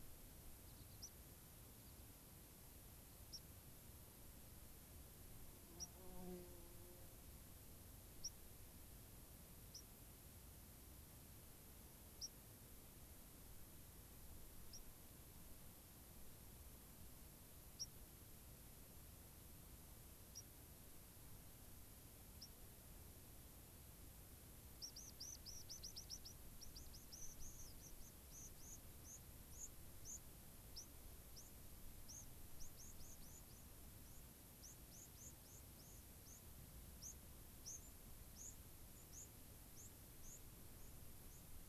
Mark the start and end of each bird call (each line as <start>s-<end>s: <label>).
0.6s-1.1s: American Pipit (Anthus rubescens)
1.0s-1.1s: White-crowned Sparrow (Zonotrichia leucophrys)
3.2s-3.4s: White-crowned Sparrow (Zonotrichia leucophrys)
5.7s-5.9s: White-crowned Sparrow (Zonotrichia leucophrys)
8.1s-8.3s: White-crowned Sparrow (Zonotrichia leucophrys)
9.6s-9.9s: White-crowned Sparrow (Zonotrichia leucophrys)
12.1s-12.4s: White-crowned Sparrow (Zonotrichia leucophrys)
14.6s-14.8s: White-crowned Sparrow (Zonotrichia leucophrys)
17.7s-17.9s: White-crowned Sparrow (Zonotrichia leucophrys)
20.3s-20.4s: White-crowned Sparrow (Zonotrichia leucophrys)
22.3s-22.5s: White-crowned Sparrow (Zonotrichia leucophrys)
24.7s-33.5s: White-crowned Sparrow (Zonotrichia leucophrys)
34.6s-41.6s: White-crowned Sparrow (Zonotrichia leucophrys)